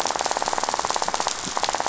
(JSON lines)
{"label": "biophony, rattle", "recorder": "SoundTrap 500"}